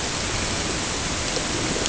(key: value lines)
label: ambient
recorder: HydroMoth